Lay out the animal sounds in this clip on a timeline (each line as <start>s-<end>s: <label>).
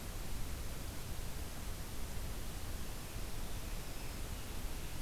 3.0s-5.0s: Scarlet Tanager (Piranga olivacea)
3.7s-4.3s: Black-throated Green Warbler (Setophaga virens)